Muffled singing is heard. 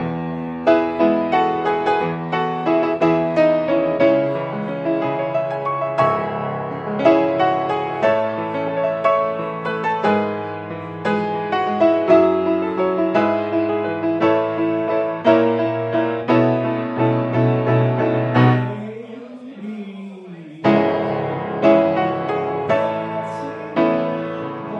18.7 20.6

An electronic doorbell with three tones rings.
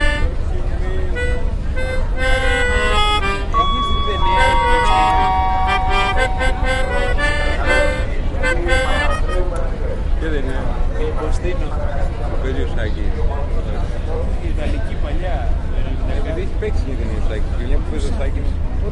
3.6 5.7

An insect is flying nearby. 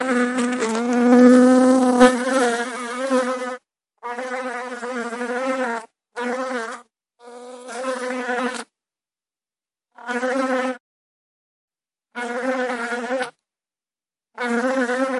0.0 8.7, 9.9 10.8, 12.1 13.3, 14.3 15.2

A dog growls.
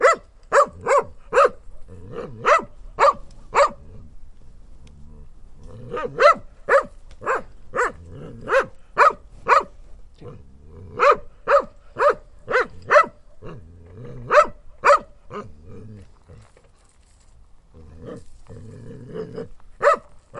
15.8 20.4

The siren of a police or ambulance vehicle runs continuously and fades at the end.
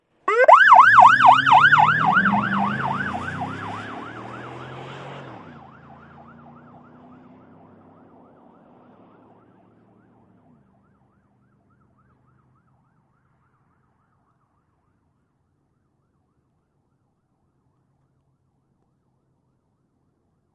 0.1 13.5

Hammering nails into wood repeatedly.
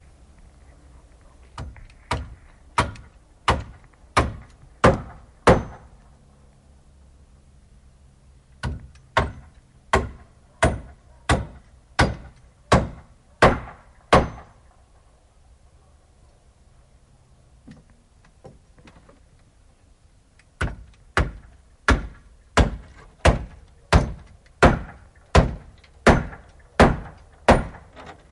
1.4 6.0, 8.5 14.6, 20.4 28.3

